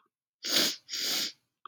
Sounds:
Sniff